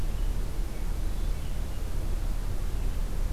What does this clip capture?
Hermit Thrush